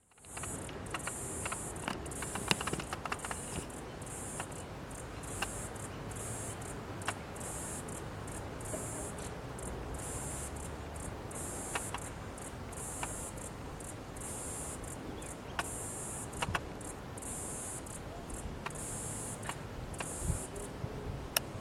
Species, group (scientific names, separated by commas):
Atrapsalta corticina, Cicadidae